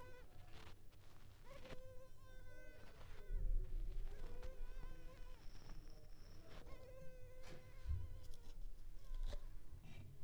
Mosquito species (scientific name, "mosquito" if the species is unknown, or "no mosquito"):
Culex pipiens complex